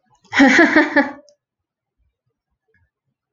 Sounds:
Laughter